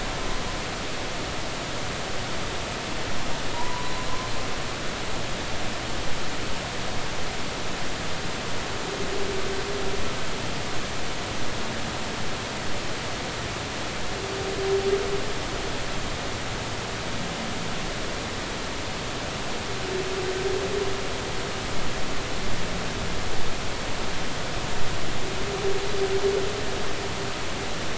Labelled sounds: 3.5	3.9	humpback whale, 0.86 to 1.0 kHz

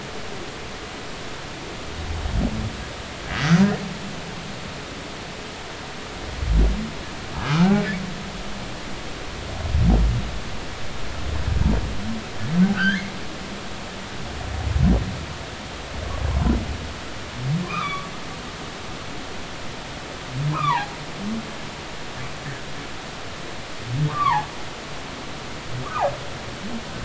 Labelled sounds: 3.3	3.7	humpback whale, 4.6 to 5.0 kHz
7.5	7.7	humpback whale, 1.2 to 1.6 kHz
12.7	13.0	humpback whale, 1.2 to 1.9 kHz
17.6	18.1	humpback whale, 0.99 to 3.6 kHz
20.5	21.0	humpback whale, 0.80 to 2.6 kHz
24.1	24.5	humpback whale, 0.80 to 1.2 kHz
25.8	26.1	humpback whale, 0.80 to 1.3 kHz

